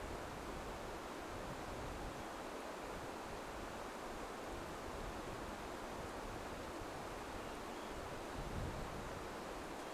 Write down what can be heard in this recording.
unidentified sound